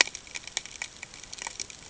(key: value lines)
label: ambient
recorder: HydroMoth